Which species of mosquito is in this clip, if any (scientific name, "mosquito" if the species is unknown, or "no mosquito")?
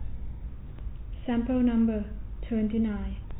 no mosquito